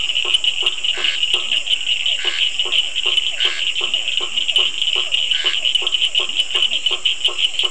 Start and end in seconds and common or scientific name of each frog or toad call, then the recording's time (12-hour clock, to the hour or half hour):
0.0	3.7	Scinax perereca
0.0	7.7	blacksmith tree frog
0.0	7.7	Physalaemus cuvieri
1.5	1.7	Leptodactylus latrans
1.5	1.7	Bischoff's tree frog
3.8	4.9	Leptodactylus latrans
5.3	5.6	Scinax perereca
6.2	7.0	Leptodactylus latrans
7:30pm